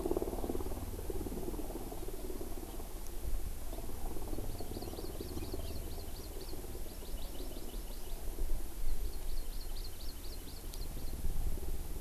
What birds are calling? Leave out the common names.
Chlorodrepanis virens